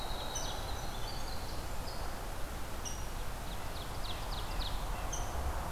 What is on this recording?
Winter Wren, Rose-breasted Grosbeak, Ovenbird